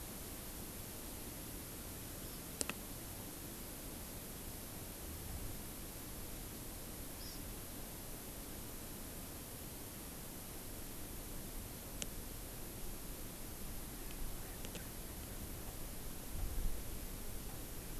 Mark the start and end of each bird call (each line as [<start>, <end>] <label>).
[7.10, 7.40] Hawaii Amakihi (Chlorodrepanis virens)
[13.80, 15.10] Erckel's Francolin (Pternistis erckelii)